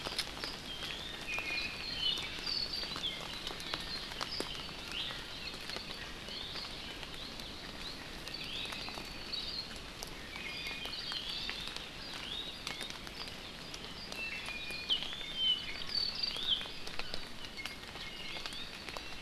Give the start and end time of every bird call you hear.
0.7s-1.8s: Iiwi (Drepanis coccinea)
1.8s-3.0s: Apapane (Himatione sanguinea)
4.9s-5.1s: Iiwi (Drepanis coccinea)
6.3s-6.6s: Iiwi (Drepanis coccinea)
8.4s-8.7s: Iiwi (Drepanis coccinea)
9.3s-9.7s: Hawaii Akepa (Loxops coccineus)
10.3s-11.0s: Iiwi (Drepanis coccinea)
10.9s-11.2s: Hawaii Akepa (Loxops coccineus)
12.2s-12.6s: Iiwi (Drepanis coccinea)
14.1s-14.9s: Iiwi (Drepanis coccinea)
15.3s-16.6s: Apapane (Himatione sanguinea)
17.6s-18.5s: Iiwi (Drepanis coccinea)
18.4s-19.0s: Apapane (Himatione sanguinea)

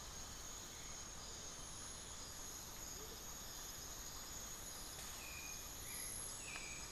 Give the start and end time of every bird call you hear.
0.0s-3.4s: Amazonian Motmot (Momotus momota)
5.1s-6.9s: Hauxwell's Thrush (Turdus hauxwelli)

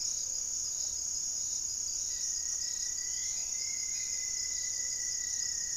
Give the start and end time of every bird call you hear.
0.0s-4.5s: Black-faced Antthrush (Formicarius analis)
0.0s-5.3s: Gray-fronted Dove (Leptotila rufaxilla)
2.1s-5.8s: Rufous-fronted Antthrush (Formicarius rufifrons)

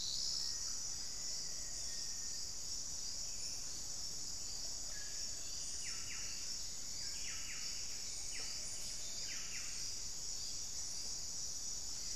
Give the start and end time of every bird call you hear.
0.2s-2.6s: Black-faced Antthrush (Formicarius analis)
4.7s-5.2s: unidentified bird
5.5s-10.0s: Buff-breasted Wren (Cantorchilus leucotis)
6.9s-9.3s: unidentified bird

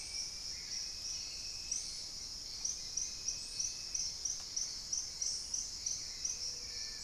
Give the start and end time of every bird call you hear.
0.0s-7.0s: Hauxwell's Thrush (Turdus hauxwelli)
0.0s-7.0s: Paradise Tanager (Tangara chilensis)
6.1s-6.9s: Gray-fronted Dove (Leptotila rufaxilla)
6.5s-7.0s: Long-billed Woodcreeper (Nasica longirostris)

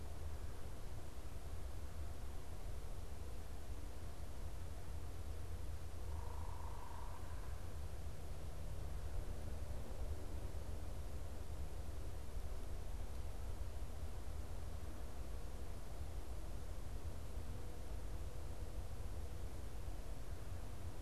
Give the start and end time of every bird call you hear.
5.9s-7.7s: unidentified bird

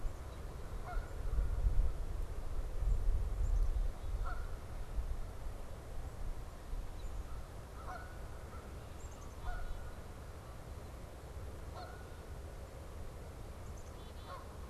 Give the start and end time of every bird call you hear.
0.0s-1.2s: Black-capped Chickadee (Poecile atricapillus)
0.0s-1.2s: Canada Goose (Branta canadensis)
2.7s-4.6s: Black-capped Chickadee (Poecile atricapillus)
3.6s-5.2s: Canada Goose (Branta canadensis)
6.8s-14.7s: Canada Goose (Branta canadensis)
8.8s-10.1s: Black-capped Chickadee (Poecile atricapillus)
13.5s-14.5s: Black-capped Chickadee (Poecile atricapillus)

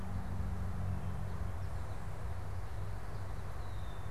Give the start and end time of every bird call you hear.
3.5s-4.1s: Red-winged Blackbird (Agelaius phoeniceus)

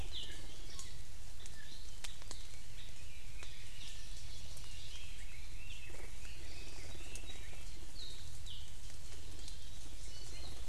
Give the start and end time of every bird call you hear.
0.1s-0.4s: Apapane (Himatione sanguinea)
3.7s-4.9s: Hawaii Amakihi (Chlorodrepanis virens)
4.5s-7.9s: Red-billed Leiothrix (Leiothrix lutea)
7.9s-8.8s: Apapane (Himatione sanguinea)
10.0s-10.6s: Iiwi (Drepanis coccinea)

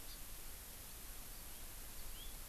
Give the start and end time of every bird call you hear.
0.0s-0.2s: Hawaii Amakihi (Chlorodrepanis virens)
1.9s-2.3s: House Finch (Haemorhous mexicanus)

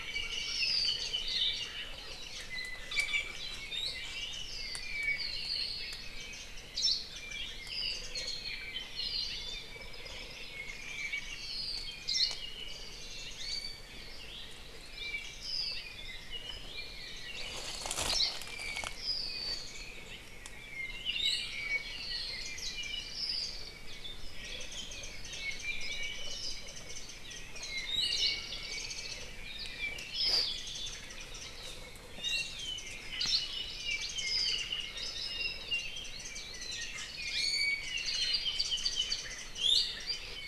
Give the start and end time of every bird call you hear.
0.0s-1.1s: Apapane (Himatione sanguinea)
0.1s-1.7s: Warbling White-eye (Zosterops japonicus)
2.0s-2.6s: Warbling White-eye (Zosterops japonicus)
2.4s-4.1s: Iiwi (Drepanis coccinea)
4.1s-4.7s: Warbling White-eye (Zosterops japonicus)
4.4s-5.9s: Apapane (Himatione sanguinea)
5.9s-6.7s: Warbling White-eye (Zosterops japonicus)
6.7s-7.1s: Hawaii Creeper (Loxops mana)
7.1s-7.4s: Warbling White-eye (Zosterops japonicus)
7.1s-9.8s: Apapane (Himatione sanguinea)
7.9s-8.5s: Warbling White-eye (Zosterops japonicus)
9.8s-11.7s: Warbling White-eye (Zosterops japonicus)
10.4s-12.1s: Apapane (Himatione sanguinea)
12.0s-12.5s: Hawaii Creeper (Loxops mana)
12.6s-13.7s: Warbling White-eye (Zosterops japonicus)
13.3s-14.0s: Iiwi (Drepanis coccinea)
14.8s-16.0s: Apapane (Himatione sanguinea)
15.2s-15.7s: Warbling White-eye (Zosterops japonicus)
17.0s-17.3s: Warbling White-eye (Zosterops japonicus)
18.0s-18.4s: Hawaii Creeper (Loxops mana)
18.1s-19.7s: Apapane (Himatione sanguinea)
19.5s-19.9s: Warbling White-eye (Zosterops japonicus)
20.6s-23.8s: Apapane (Himatione sanguinea)
21.1s-21.6s: Iiwi (Drepanis coccinea)
22.4s-23.0s: Warbling White-eye (Zosterops japonicus)
24.4s-28.0s: Warbling White-eye (Zosterops japonicus)
25.3s-26.6s: Apapane (Himatione sanguinea)
27.5s-29.0s: Apapane (Himatione sanguinea)
27.8s-28.3s: Iiwi (Drepanis coccinea)
28.1s-28.4s: Hawaii Creeper (Loxops mana)
28.6s-29.4s: Warbling White-eye (Zosterops japonicus)
29.3s-30.6s: Apapane (Himatione sanguinea)
30.5s-31.6s: Warbling White-eye (Zosterops japonicus)
32.1s-32.7s: Iiwi (Drepanis coccinea)
32.2s-33.0s: Warbling White-eye (Zosterops japonicus)
33.1s-33.5s: Hawaii Creeper (Loxops mana)
33.7s-35.3s: Warbling White-eye (Zosterops japonicus)
33.7s-35.7s: Apapane (Himatione sanguinea)
35.7s-37.1s: Warbling White-eye (Zosterops japonicus)
37.2s-38.0s: Iiwi (Drepanis coccinea)
37.8s-39.4s: Apapane (Himatione sanguinea)
37.8s-39.9s: Warbling White-eye (Zosterops japonicus)
39.5s-40.1s: Iiwi (Drepanis coccinea)

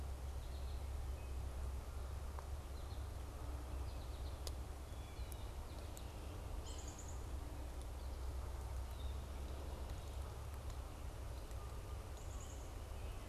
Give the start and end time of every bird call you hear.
0.0s-4.6s: American Goldfinch (Spinus tristis)
6.4s-7.5s: Black-capped Chickadee (Poecile atricapillus)
6.5s-7.0s: Yellow-bellied Sapsucker (Sphyrapicus varius)
11.9s-12.9s: Black-capped Chickadee (Poecile atricapillus)

